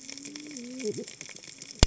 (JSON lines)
{"label": "biophony, cascading saw", "recorder": "HydroMoth"}